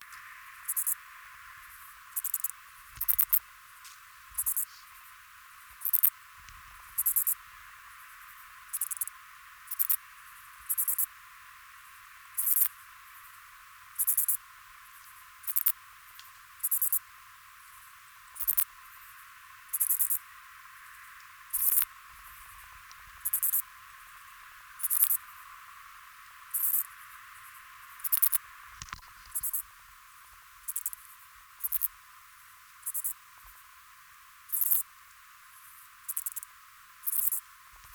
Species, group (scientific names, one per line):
Pholidoptera griseoaptera
Orthoptera